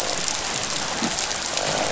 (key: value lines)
label: biophony, croak
recorder: SoundTrap 500